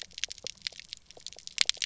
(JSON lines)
{"label": "biophony, pulse", "recorder": "SoundTrap 300"}